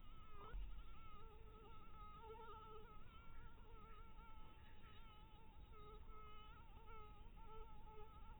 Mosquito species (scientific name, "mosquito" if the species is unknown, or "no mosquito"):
Anopheles dirus